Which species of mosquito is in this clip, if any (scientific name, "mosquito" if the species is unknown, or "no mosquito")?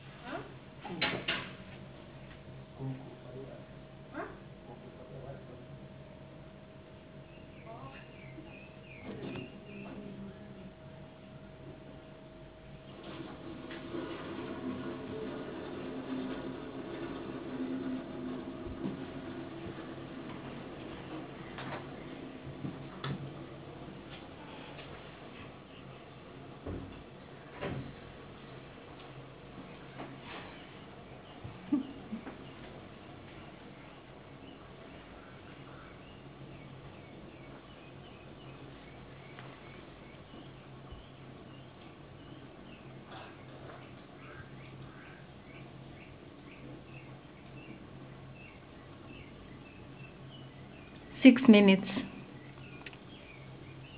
no mosquito